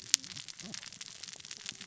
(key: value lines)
label: biophony, cascading saw
recorder: SoundTrap 600 or HydroMoth